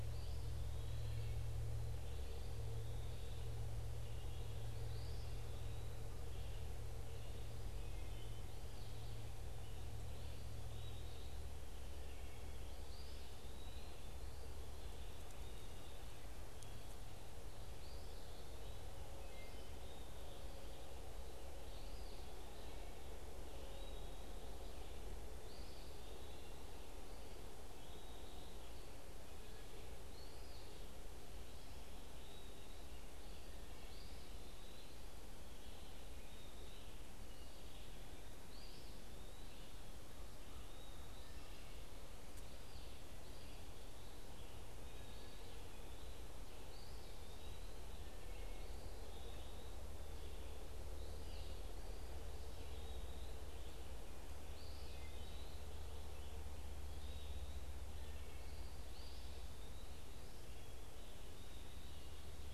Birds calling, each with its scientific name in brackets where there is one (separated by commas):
American Robin (Turdus migratorius), Wood Thrush (Hylocichla mustelina), Eastern Wood-Pewee (Contopus virens)